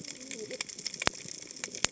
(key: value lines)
label: biophony, cascading saw
recorder: HydroMoth